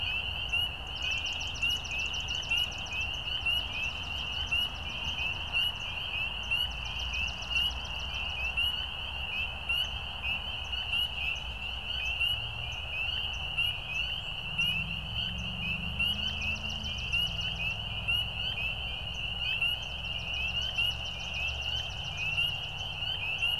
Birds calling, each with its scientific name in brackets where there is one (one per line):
Swamp Sparrow (Melospiza georgiana)